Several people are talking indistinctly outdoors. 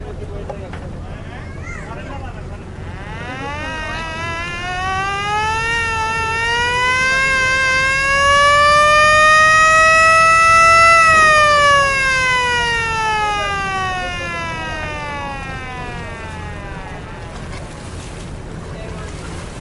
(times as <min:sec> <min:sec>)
0:00.0 0:02.3